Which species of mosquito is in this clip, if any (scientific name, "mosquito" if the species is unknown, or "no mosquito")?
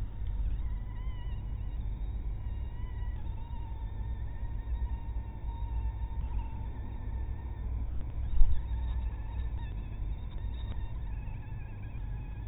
mosquito